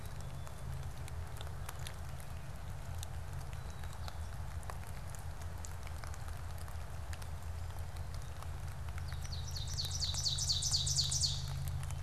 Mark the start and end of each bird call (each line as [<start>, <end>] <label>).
[3.31, 4.61] Black-capped Chickadee (Poecile atricapillus)
[8.71, 12.01] Ovenbird (Seiurus aurocapilla)